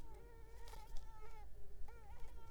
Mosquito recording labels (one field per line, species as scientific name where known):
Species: Mansonia uniformis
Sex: female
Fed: unfed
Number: one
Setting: cup